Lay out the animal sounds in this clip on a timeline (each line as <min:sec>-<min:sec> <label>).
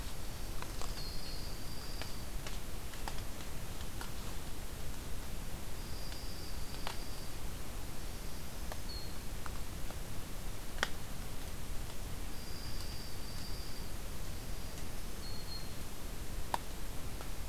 0:00.7-0:02.2 Dark-eyed Junco (Junco hyemalis)
0:05.6-0:07.3 Dark-eyed Junco (Junco hyemalis)
0:07.9-0:09.2 Black-throated Green Warbler (Setophaga virens)
0:12.3-0:13.9 Dark-eyed Junco (Junco hyemalis)
0:14.1-0:15.8 Black-throated Green Warbler (Setophaga virens)